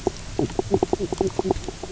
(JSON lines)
{"label": "biophony, knock croak", "recorder": "SoundTrap 300"}